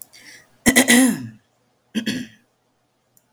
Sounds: Throat clearing